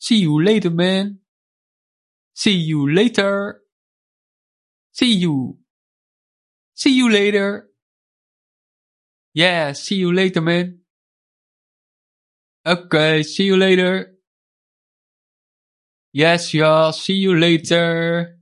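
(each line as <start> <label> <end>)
0.0 A sharp, isolated male vocal hit rings out clearly and with impact. 18.4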